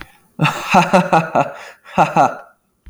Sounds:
Laughter